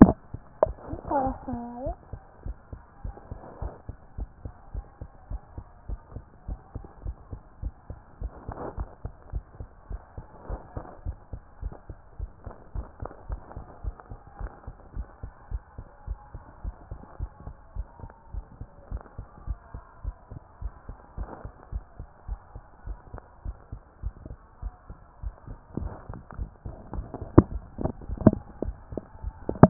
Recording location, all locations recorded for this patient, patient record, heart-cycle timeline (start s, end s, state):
tricuspid valve (TV)
pulmonary valve (PV)+tricuspid valve (TV)+mitral valve (MV)
#Age: nan
#Sex: Female
#Height: nan
#Weight: nan
#Pregnancy status: True
#Murmur: Absent
#Murmur locations: nan
#Most audible location: nan
#Systolic murmur timing: nan
#Systolic murmur shape: nan
#Systolic murmur grading: nan
#Systolic murmur pitch: nan
#Systolic murmur quality: nan
#Diastolic murmur timing: nan
#Diastolic murmur shape: nan
#Diastolic murmur grading: nan
#Diastolic murmur pitch: nan
#Diastolic murmur quality: nan
#Outcome: Normal
#Campaign: 2014 screening campaign
0.00	0.16	S1
0.16	0.30	systole
0.30	0.40	S2
0.40	0.62	diastole
0.62	0.76	S1
0.76	0.90	systole
0.90	1.00	S2
1.00	1.16	diastole
1.16	1.34	S1
1.34	1.48	systole
1.48	1.64	S2
1.64	1.78	diastole
1.78	1.96	S1
1.96	2.10	systole
2.10	2.20	S2
2.20	2.42	diastole
2.42	2.56	S1
2.56	2.72	systole
2.72	2.82	S2
2.82	3.04	diastole
3.04	3.16	S1
3.16	3.28	systole
3.28	3.38	S2
3.38	3.58	diastole
3.58	3.72	S1
3.72	3.86	systole
3.86	3.96	S2
3.96	4.14	diastole
4.14	4.28	S1
4.28	4.42	systole
4.42	4.52	S2
4.52	4.70	diastole
4.70	4.84	S1
4.84	4.98	systole
4.98	5.08	S2
5.08	5.28	diastole
5.28	5.40	S1
5.40	5.54	systole
5.54	5.66	S2
5.66	5.86	diastole
5.86	6.00	S1
6.00	6.14	systole
6.14	6.26	S2
6.26	6.48	diastole
6.48	6.60	S1
6.60	6.72	systole
6.72	6.84	S2
6.84	7.02	diastole
7.02	7.16	S1
7.16	7.30	systole
7.30	7.40	S2
7.40	7.60	diastole
7.60	7.74	S1
7.74	7.90	systole
7.90	7.98	S2
7.98	8.18	diastole
8.18	8.32	S1
8.32	8.46	systole
8.46	8.56	S2
8.56	8.74	diastole
8.74	8.88	S1
8.88	9.02	systole
9.02	9.12	S2
9.12	9.30	diastole
9.30	9.44	S1
9.44	9.58	systole
9.58	9.68	S2
9.68	9.88	diastole
9.88	10.02	S1
10.02	10.18	systole
10.18	10.26	S2
10.26	10.46	diastole
10.46	10.60	S1
10.60	10.74	systole
10.74	10.84	S2
10.84	11.02	diastole
11.02	11.16	S1
11.16	11.30	systole
11.30	11.40	S2
11.40	11.60	diastole
11.60	11.74	S1
11.74	11.90	systole
11.90	11.98	S2
11.98	12.16	diastole
12.16	12.30	S1
12.30	12.44	systole
12.44	12.54	S2
12.54	12.74	diastole
12.74	12.86	S1
12.86	13.00	systole
13.00	13.10	S2
13.10	13.26	diastole
13.26	13.40	S1
13.40	13.58	systole
13.58	13.68	S2
13.68	13.84	diastole
13.84	13.96	S1
13.96	14.10	systole
14.10	14.20	S2
14.20	14.38	diastole
14.38	14.52	S1
14.52	14.68	systole
14.68	14.76	S2
14.76	14.94	diastole
14.94	15.08	S1
15.08	15.24	systole
15.24	15.32	S2
15.32	15.48	diastole
15.48	15.62	S1
15.62	15.78	systole
15.78	15.86	S2
15.86	16.08	diastole
16.08	16.18	S1
16.18	16.34	systole
16.34	16.42	S2
16.42	16.62	diastole
16.62	16.76	S1
16.76	16.90	systole
16.90	17.00	S2
17.00	17.20	diastole
17.20	17.30	S1
17.30	17.46	systole
17.46	17.56	S2
17.56	17.74	diastole
17.74	17.88	S1
17.88	18.04	systole
18.04	18.10	S2
18.10	18.32	diastole
18.32	18.46	S1
18.46	18.62	systole
18.62	18.68	S2
18.68	18.90	diastole
18.90	19.02	S1
19.02	19.18	systole
19.18	19.28	S2
19.28	19.48	diastole
19.48	19.58	S1
19.58	19.74	systole
19.74	19.82	S2
19.82	20.02	diastole
20.02	20.16	S1
20.16	20.32	systole
20.32	20.42	S2
20.42	20.60	diastole
20.60	20.74	S1
20.74	20.88	systole
20.88	20.98	S2
20.98	21.16	diastole
21.16	21.30	S1
21.30	21.44	systole
21.44	21.54	S2
21.54	21.72	diastole
21.72	21.84	S1
21.84	21.98	systole
21.98	22.08	S2
22.08	22.26	diastole
22.26	22.40	S1
22.40	22.54	systole
22.54	22.64	S2
22.64	22.86	diastole
22.86	22.98	S1
22.98	23.14	systole
23.14	23.24	S2
23.24	23.44	diastole
23.44	23.58	S1
23.58	23.72	systole
23.72	23.82	S2
23.82	24.04	diastole
24.04	24.14	S1
24.14	24.30	systole
24.30	24.40	S2
24.40	24.62	diastole
24.62	24.74	S1
24.74	24.90	systole
24.90	25.00	S2
25.00	25.22	diastole
25.22	25.34	S1
25.34	25.48	systole
25.48	25.58	S2
25.58	25.76	diastole
25.76	25.94	S1
25.94	26.08	systole
26.08	26.22	S2
26.22	26.40	diastole
26.40	26.50	S1
26.50	26.66	systole
26.66	26.76	S2
26.76	26.92	diastole
26.92	27.08	S1
27.08	27.20	systole
27.20	27.30	S2
27.30	27.50	diastole
27.50	27.64	S1
27.64	27.78	systole
27.78	27.92	S2
27.92	28.06	diastole
28.06	28.20	S1
28.20	28.34	systole
28.34	28.46	S2
28.46	28.62	diastole
28.62	28.78	S1
28.78	28.92	systole
28.92	29.04	S2
29.04	29.22	diastole
29.22	29.40	S1
29.40	29.56	systole
29.56	29.70	S2